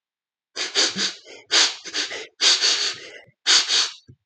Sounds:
Sniff